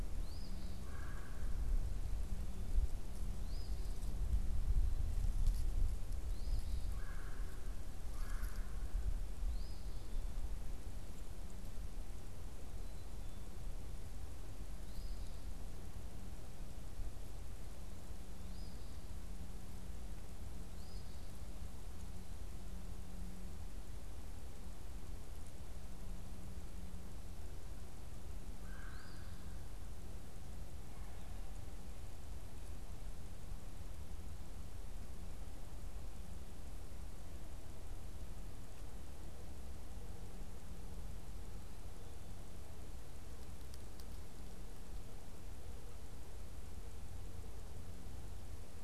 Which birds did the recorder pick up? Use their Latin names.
Sayornis phoebe, Melanerpes carolinus, unidentified bird